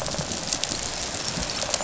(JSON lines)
{"label": "biophony, rattle response", "recorder": "SoundTrap 500"}